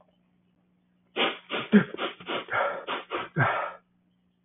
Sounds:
Sniff